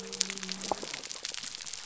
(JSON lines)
{"label": "biophony", "recorder": "SoundTrap 300"}